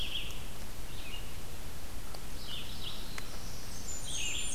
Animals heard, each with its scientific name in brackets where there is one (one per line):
Black-throated Blue Warbler (Setophaga caerulescens)
Blackburnian Warbler (Setophaga fusca)
Red-eyed Vireo (Vireo olivaceus)